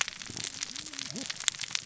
{"label": "biophony, cascading saw", "recorder": "SoundTrap 600 or HydroMoth"}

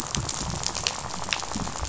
{"label": "biophony, rattle", "recorder": "SoundTrap 500"}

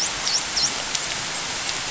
{"label": "biophony, dolphin", "recorder": "SoundTrap 500"}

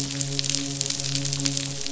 {"label": "biophony, midshipman", "recorder": "SoundTrap 500"}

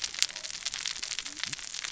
{"label": "biophony, cascading saw", "recorder": "SoundTrap 600 or HydroMoth"}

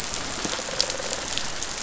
{"label": "biophony, rattle response", "recorder": "SoundTrap 500"}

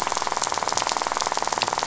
{"label": "biophony, rattle", "recorder": "SoundTrap 500"}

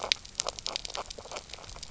{"label": "biophony, knock croak", "recorder": "SoundTrap 300"}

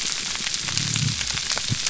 {"label": "biophony", "recorder": "SoundTrap 300"}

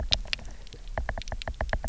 {"label": "biophony, knock", "recorder": "SoundTrap 300"}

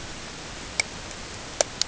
{"label": "ambient", "recorder": "HydroMoth"}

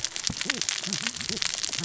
{"label": "biophony, cascading saw", "recorder": "SoundTrap 600 or HydroMoth"}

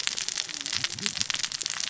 {"label": "biophony, cascading saw", "recorder": "SoundTrap 600 or HydroMoth"}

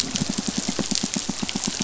{"label": "biophony, pulse", "recorder": "SoundTrap 500"}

